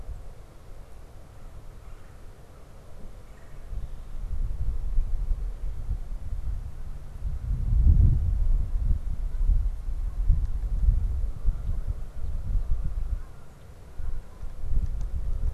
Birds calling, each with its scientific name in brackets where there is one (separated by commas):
Red-bellied Woodpecker (Melanerpes carolinus)